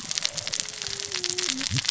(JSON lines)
{"label": "biophony, cascading saw", "recorder": "SoundTrap 600 or HydroMoth"}